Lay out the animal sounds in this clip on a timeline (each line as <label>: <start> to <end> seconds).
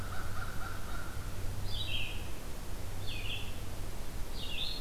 American Crow (Corvus brachyrhynchos): 0.0 to 1.4 seconds
Red-eyed Vireo (Vireo olivaceus): 0.0 to 4.8 seconds